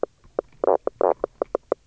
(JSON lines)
{"label": "biophony, knock croak", "recorder": "SoundTrap 300"}